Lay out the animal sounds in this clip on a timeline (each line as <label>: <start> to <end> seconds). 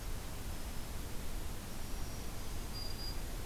Black-throated Green Warbler (Setophaga virens): 1.7 to 3.3 seconds